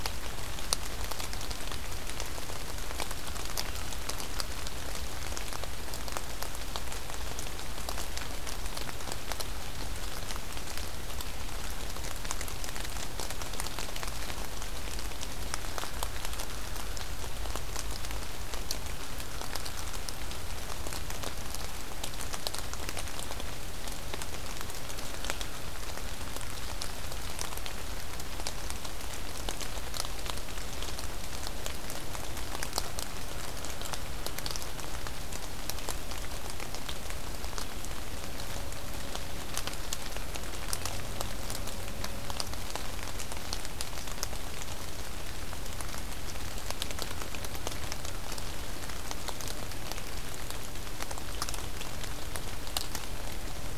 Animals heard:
forest ambience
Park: Marsh-Billings-Rockefeller National Historical Park